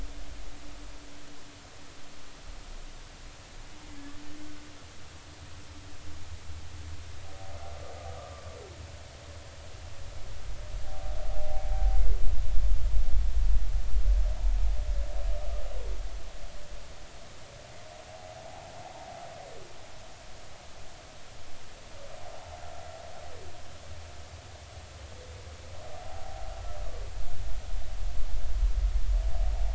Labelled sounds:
8.2	8.5	humpback whale, 0.99 to 1.3 kHz
11.3	11.6	humpback whale, 0.80 to 0.90 kHz
26.0	26.4	humpback whale, 0.80 to 0.90 kHz

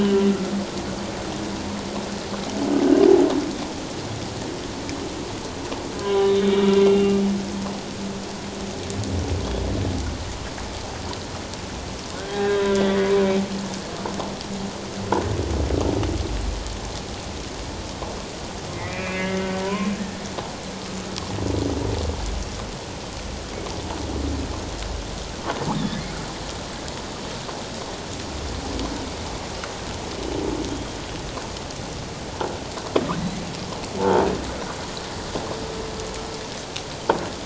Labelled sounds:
6.0	7.2	humpback whale, 0.94 to 3.8 kHz
12.2	13.1	humpback whale, 0.94 to 3.9 kHz
18.7	19.9	humpback whale, 0.94 to 2.7 kHz
25.7	26.0	humpback whale, 3.4 to 3.8 kHz
30.7	31.0	humpback whale, 3.1 to 3.3 kHz
34.0	34.2	croaking sound likely from a nearby submerged object, 0.81 to 0.94 kHz

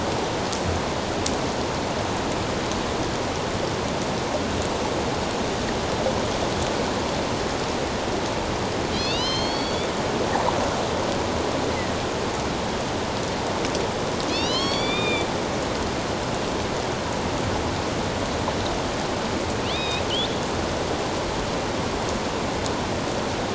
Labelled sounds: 8.9	9.9	killer whale, northern resident, A clan, AB subclan, 2.5 to 6.5 kHz
14.3	15.3	killer whale, northern resident, A clan, AB subclan, 2.1 to 6.2 kHz
19.6	20.0	killer whale, northern resident, A clan, AB subclan, 2.3 to 4.0 kHz

